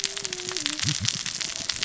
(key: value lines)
label: biophony, cascading saw
recorder: SoundTrap 600 or HydroMoth